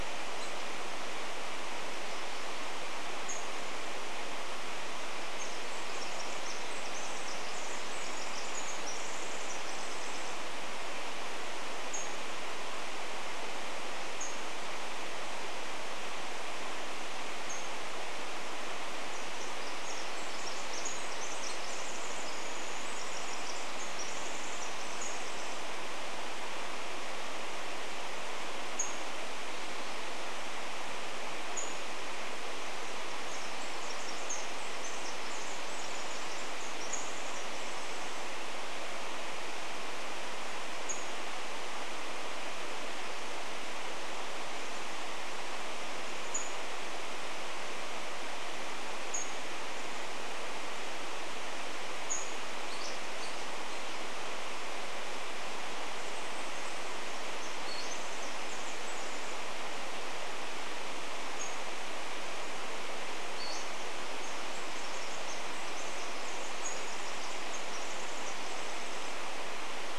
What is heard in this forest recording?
Pacific-slope Flycatcher call, Pacific Wren song